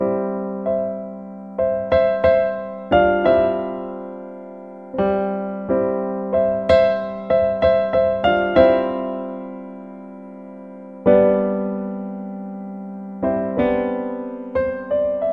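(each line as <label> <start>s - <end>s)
A piano plays a rhythmic and bright tune indoors. 0.0s - 15.3s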